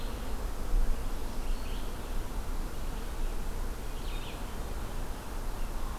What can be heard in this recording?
Red-eyed Vireo